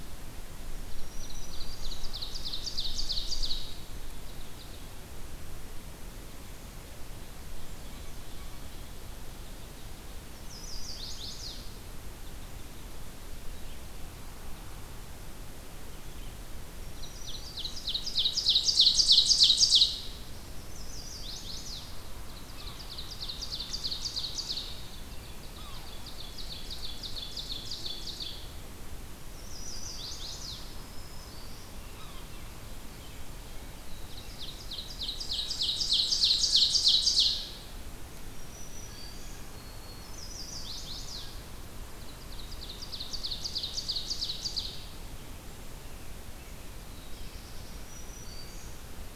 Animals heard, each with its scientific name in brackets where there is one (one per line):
Black-throated Green Warbler (Setophaga virens)
Black-and-white Warbler (Mniotilta varia)
Chestnut-sided Warbler (Setophaga pensylvanica)
Yellow-bellied Sapsucker (Sphyrapicus varius)
Ovenbird (Seiurus aurocapilla)
Black-throated Blue Warbler (Setophaga caerulescens)